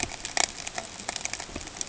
{"label": "ambient", "recorder": "HydroMoth"}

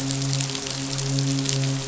{"label": "biophony, midshipman", "recorder": "SoundTrap 500"}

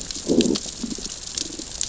{"label": "biophony, growl", "recorder": "SoundTrap 600 or HydroMoth"}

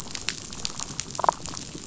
{"label": "biophony, damselfish", "recorder": "SoundTrap 500"}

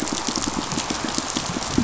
{"label": "biophony, pulse", "recorder": "SoundTrap 500"}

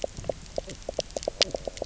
{"label": "biophony, knock croak", "recorder": "SoundTrap 300"}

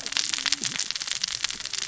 {"label": "biophony, cascading saw", "recorder": "SoundTrap 600 or HydroMoth"}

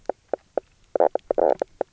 {"label": "biophony, knock croak", "recorder": "SoundTrap 300"}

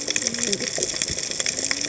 {"label": "biophony, cascading saw", "recorder": "HydroMoth"}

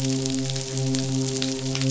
{"label": "biophony, midshipman", "recorder": "SoundTrap 500"}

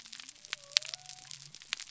{"label": "biophony", "recorder": "SoundTrap 300"}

